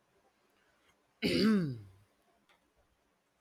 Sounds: Throat clearing